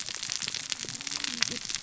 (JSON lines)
{"label": "biophony, cascading saw", "recorder": "SoundTrap 600 or HydroMoth"}